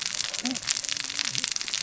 {"label": "biophony, cascading saw", "recorder": "SoundTrap 600 or HydroMoth"}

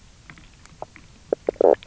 {"label": "biophony, knock croak", "recorder": "SoundTrap 300"}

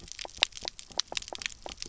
{"label": "biophony, knock croak", "recorder": "SoundTrap 300"}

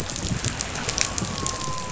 {"label": "biophony, dolphin", "recorder": "SoundTrap 500"}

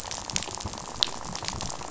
{"label": "biophony, rattle", "recorder": "SoundTrap 500"}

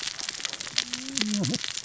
{"label": "biophony, cascading saw", "recorder": "SoundTrap 600 or HydroMoth"}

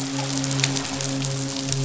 {"label": "biophony, midshipman", "recorder": "SoundTrap 500"}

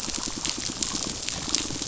{"label": "biophony, pulse", "recorder": "SoundTrap 500"}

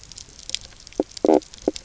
{"label": "biophony, knock croak", "recorder": "SoundTrap 300"}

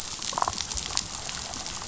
{"label": "biophony, damselfish", "recorder": "SoundTrap 500"}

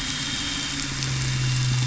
{"label": "anthrophony, boat engine", "recorder": "SoundTrap 500"}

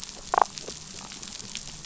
{"label": "biophony, damselfish", "recorder": "SoundTrap 500"}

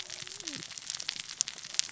{"label": "biophony, cascading saw", "recorder": "SoundTrap 600 or HydroMoth"}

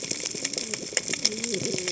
{"label": "biophony, cascading saw", "recorder": "HydroMoth"}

